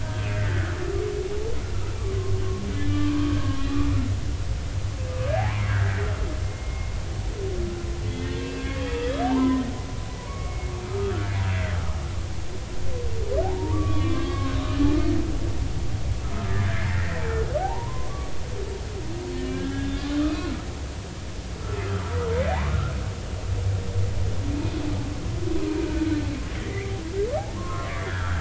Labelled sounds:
0.3	0.8	humpback whale, 1.3 to 2.0 kHz
2.9	3.9	humpback whale, 0.96 to 2.6 kHz
5.7	6.0	humpback whale, 1.4 to 2.0 kHz
6.4	6.9	humpback whale, 2.1 to 2.2 kHz
8.2	9.6	humpback whale, 0.80 to 3.5 kHz
10.2	11.3	humpback whale, 0.93 to 2.3 kHz
13.4	14.8	humpback whale, 0.80 to 3.5 kHz
16.5	17.2	humpback whale, 1.5 to 2.0 kHz
17.6	18.3	humpback whale, 0.80 to 1.2 kHz
19.4	20.5	humpback whale, 1.5 to 3.6 kHz
22.5	22.9	humpback whale, 0.80 to 1.5 kHz
25.8	26.9	humpback whale, 1.4 to 2.5 kHz
27.5	28.4	humpback whale, 0.99 to 1.9 kHz

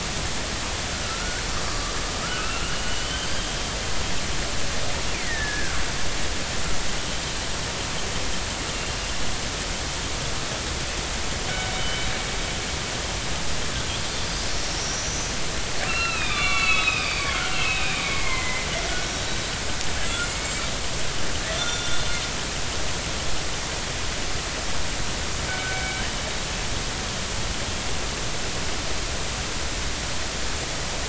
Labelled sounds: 1.0	1.9	killer whale, northern resident, 1.1 to 1.7 kHz
2.2	3.8	killer whale, northern resident, 1.2 to 3.3 kHz
5.1	5.7	killer whale, northern resident, 1.4 to 2.5 kHz
8.7	9.0	killer whale, northern resident, 2.7 to 2.8 kHz
11.8	12.1	killer whale, northern resident, 3.0 to 3.2 kHz
14.8	15.3	killer whale, northern resident, 5.5 to 6.2 kHz
15.9	19.3	killer whale, northern resident, 0.96 to 8.0 kHz
20.0	20.5	killer whale, northern resident, 1.3 to 2.3 kHz
21.5	22.1	killer whale, northern resident, 1.3 to 3.6 kHz
25.5	26.1	killer whale, northern resident, 1.4 to 2.3 kHz

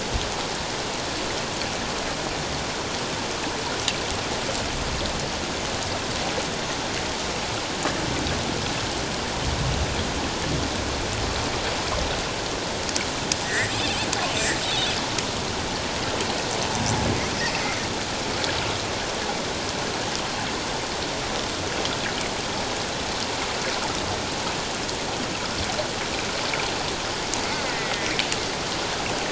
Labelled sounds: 13.4	13.7	killer whale, offshore, call OFF07, 1.5 to 2.1 kHz
14.6	14.9	killer whale, offshore, call OFF07, 3.3 to 3.9 kHz
27.6	27.9	killer whale, offshore, call OFF02, 1.8 to 2.1 kHz

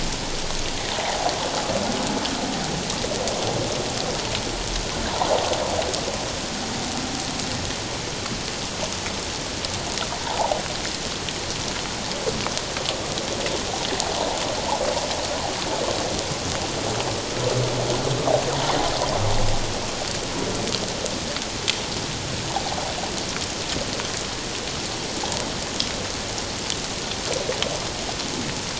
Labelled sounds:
1.0	1.3	water noise, 0.78 to 1.0 kHz

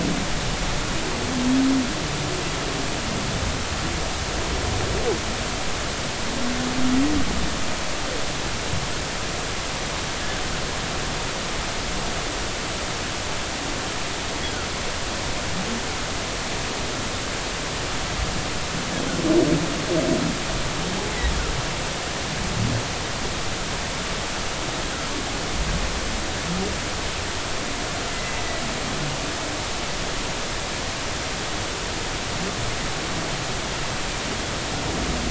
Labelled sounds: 28.1	28.6	humpback whale, 1.9 to 2.1 kHz

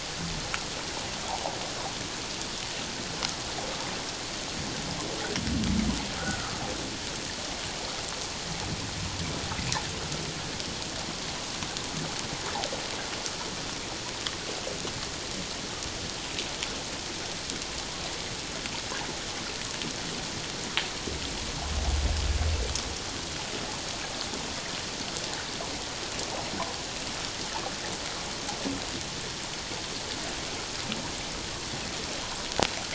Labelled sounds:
6.2	6.6	humpback whale, 1.2 to 1.6 kHz

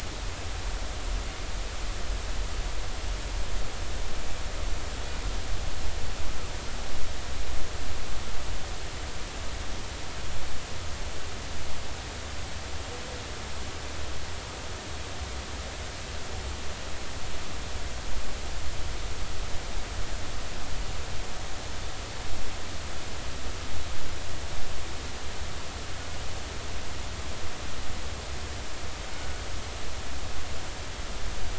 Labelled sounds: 29.1	29.4	killer whale, northern resident, G clan, call N24ii, 1.4 to 1.5 kHz

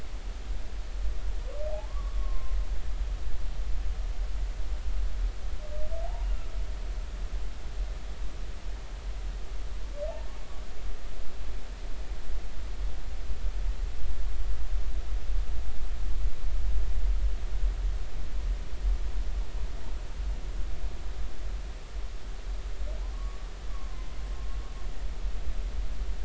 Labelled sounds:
1.9	2.6	humpback whale, 0.96 to 1.2 kHz
23.1	23.5	humpback whale, 1.0 to 1.2 kHz

